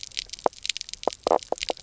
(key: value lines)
label: biophony, knock croak
recorder: SoundTrap 300